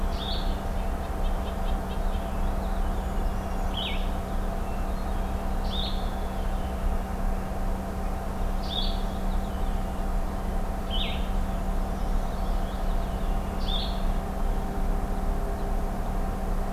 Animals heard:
Blue-headed Vireo (Vireo solitarius), Red-breasted Nuthatch (Sitta canadensis), Hermit Thrush (Catharus guttatus), Brown Creeper (Certhia americana), Purple Finch (Haemorhous purpureus)

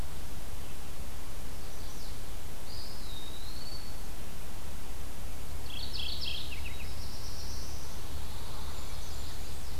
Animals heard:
Eastern Wood-Pewee (Contopus virens), Pine Warbler (Setophaga pinus), Mourning Warbler (Geothlypis philadelphia), Chestnut-sided Warbler (Setophaga pensylvanica), Black-throated Blue Warbler (Setophaga caerulescens), Blackburnian Warbler (Setophaga fusca)

